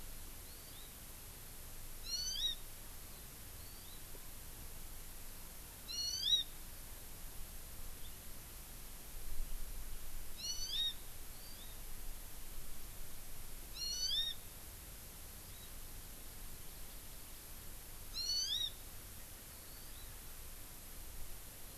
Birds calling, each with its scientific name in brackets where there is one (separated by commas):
Hawaii Amakihi (Chlorodrepanis virens)